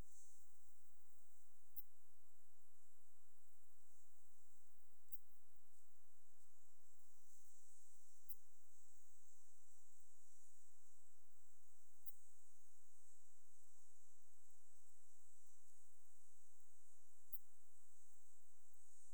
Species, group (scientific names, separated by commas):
Steropleurus andalusius, Orthoptera